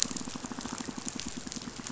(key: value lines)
label: biophony, pulse
recorder: SoundTrap 500